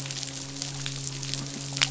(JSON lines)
{"label": "biophony, midshipman", "recorder": "SoundTrap 500"}